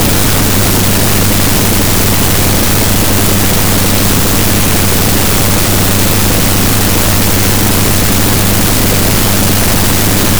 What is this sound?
Leptophyes boscii, an orthopteran